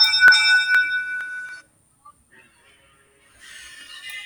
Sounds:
Laughter